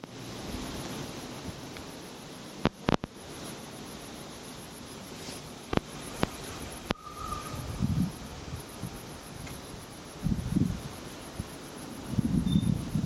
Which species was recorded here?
Tettigonia viridissima